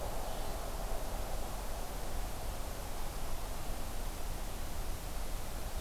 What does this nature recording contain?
Blue-headed Vireo